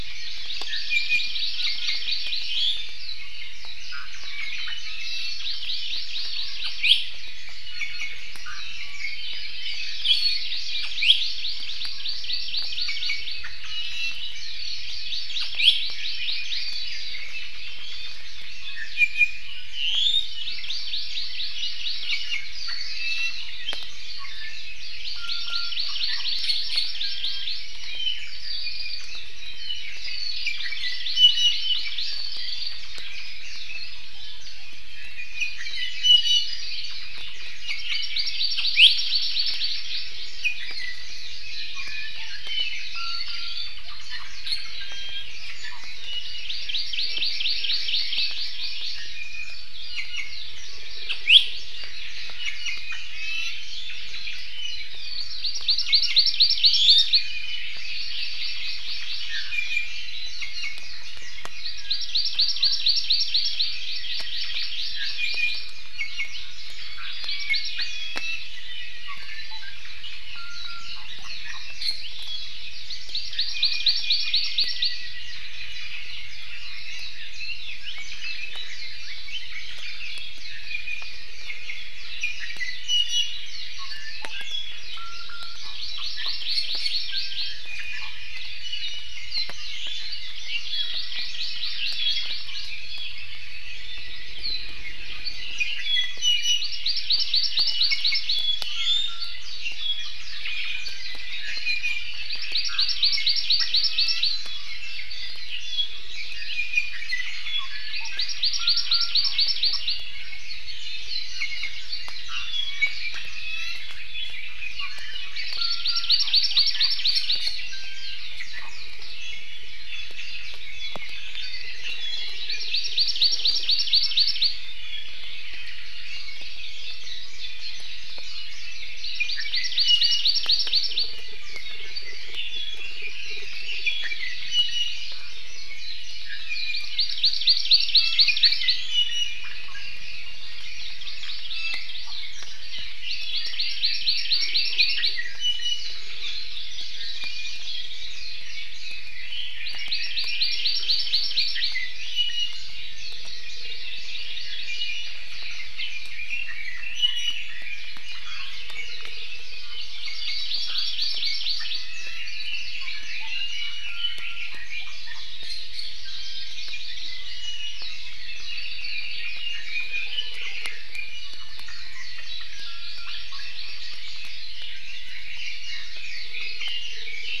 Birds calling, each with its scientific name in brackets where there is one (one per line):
Apapane (Himatione sanguinea)
Red-billed Leiothrix (Leiothrix lutea)
Hawaii Amakihi (Chlorodrepanis virens)
Iiwi (Drepanis coccinea)
Warbling White-eye (Zosterops japonicus)